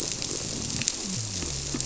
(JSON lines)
{"label": "biophony", "recorder": "SoundTrap 300"}